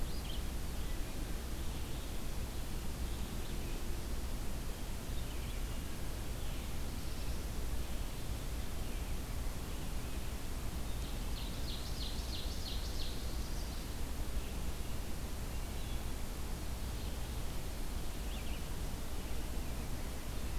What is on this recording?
Red-eyed Vireo, Black-throated Blue Warbler, Ovenbird